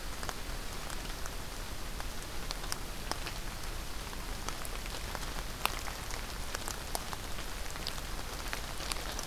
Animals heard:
forest ambience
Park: Acadia National Park